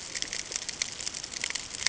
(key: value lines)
label: ambient
recorder: HydroMoth